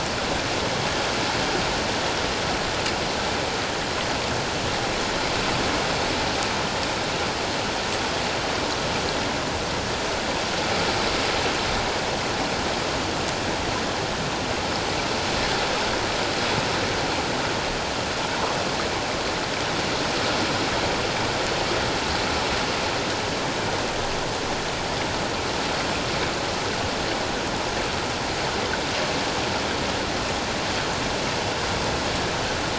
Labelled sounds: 18.3	18.6	water noise, 0.91 to 1.3 kHz

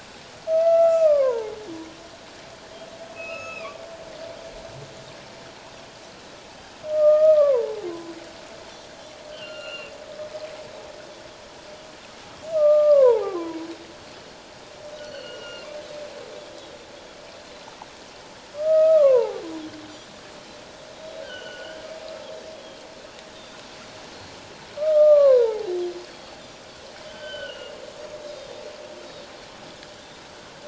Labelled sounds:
0.5	1.6	humpback whale, 0.81 to 7.4 kHz
3.1	3.8	humpback whale, 1.0 to 5.3 kHz
6.9	8.1	humpback whale, 0.78 to 1.3 kHz
9.3	9.9	humpback whale, 1.3 to 7.1 kHz
12.5	13.6	humpback whale, 0.78 to 1.3 kHz
15.1	15.7	humpback whale, 1.3 to 4.5 kHz
16.6	16.9	humpback whale, 3.6 to 3.9 kHz
18.6	19.4	Pacific white-sided dolphin, 0.78 to 1.3 kHz
19.9	20.1	humpback whale, 5.8 to 6.0 kHz
20.9	21.2	Pacific white-sided dolphin, 3.7 to 3.9 kHz
21.2	21.9	humpback whale, 1.4 to 3.2 kHz
22.5	23.6	Pacific white-sided dolphin, 3.1 to 3.8 kHz
24.8	25.7	humpback whale, 0.78 to 1.8 kHz
27.0	27.7	humpback whale, 1.4 to 3.3 kHz
28.2	28.6	Pacific white-sided dolphin, 3.6 to 4.0 kHz

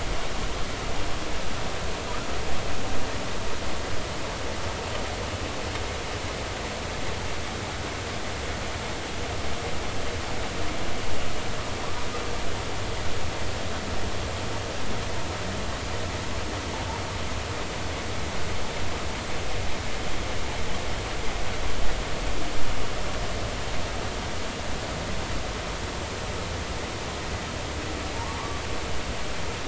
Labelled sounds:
28.1	28.4	humpback whale, 0.80 to 1.2 kHz

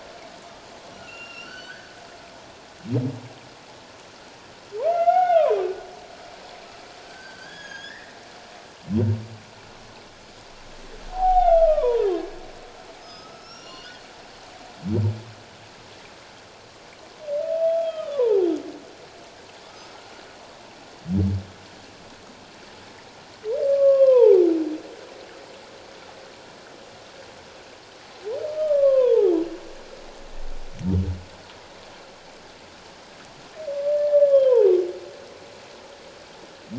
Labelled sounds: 1.0	1.9	humpback whale, 1.3 to 7.0 kHz
4.9	5.6	humpback whale, 0.78 to 2.8 kHz
7.0	8.2	humpback whale, 1.5 to 6.7 kHz
11.1	12.1	humpback whale, 0.78 to 3.7 kHz
13.0	14.1	humpback whale, 1.2 to 6.5 kHz
17.8	18.5	humpback whale, 0.78 to 3.4 kHz
23.7	24.5	humpback whale, 0.78 to 1.2 kHz
28.6	29.4	humpback whale, 0.78 to 1.3 kHz
34.3	34.6	humpback whale, 3.0 to 3.3 kHz

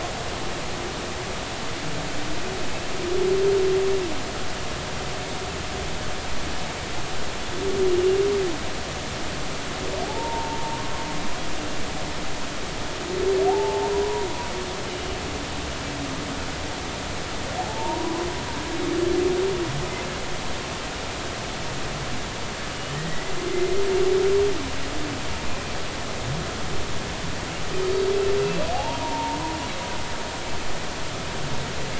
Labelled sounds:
7.9	8.2	humpback whale, 2.8 to 3.0 kHz
10.0	10.8	humpback whale, 0.80 to 0.99 kHz
13.5	14.3	humpback whale, 0.80 to 1.0 kHz
14.9	15.2	humpback whale, 2.9 to 3.0 kHz
17.6	18.2	humpback whale, 0.80 to 1.1 kHz
22.9	23.3	humpback whale, 1.8 to 2.0 kHz
28.7	29.4	humpback whale, 0.80 to 0.99 kHz

